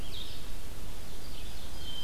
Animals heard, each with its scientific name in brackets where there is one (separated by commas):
Red-eyed Vireo (Vireo olivaceus), Ovenbird (Seiurus aurocapilla)